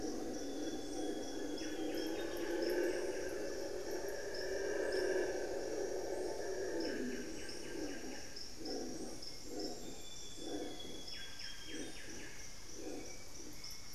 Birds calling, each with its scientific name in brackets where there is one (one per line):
Solitary Black Cacique (Cacicus solitarius)
Hauxwell's Thrush (Turdus hauxwelli)
Amazonian Grosbeak (Cyanoloxia rothschildii)